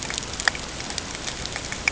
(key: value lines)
label: ambient
recorder: HydroMoth